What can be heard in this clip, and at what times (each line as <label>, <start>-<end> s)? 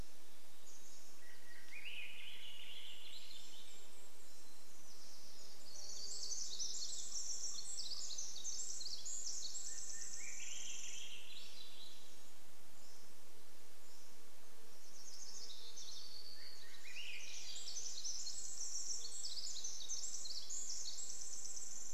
unidentified sound, 0-2 s
Swainson's Thrush song, 0-4 s
Golden-crowned Kinglet song, 2-4 s
Pacific-slope Flycatcher song, 4-6 s
warbler song, 4-6 s
insect buzz, 4-10 s
Common Raven call, 6-8 s
Pacific Wren song, 6-14 s
Swainson's Thrush song, 8-12 s
Pacific-slope Flycatcher song, 12-14 s
insect buzz, 12-22 s
Swainson's Thrush song, 16-18 s
Pacific Wren song, 16-22 s